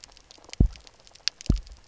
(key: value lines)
label: biophony, double pulse
recorder: SoundTrap 300